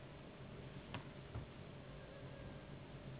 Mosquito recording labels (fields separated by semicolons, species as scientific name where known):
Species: Anopheles gambiae s.s.; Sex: female; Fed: unfed; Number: one; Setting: insect culture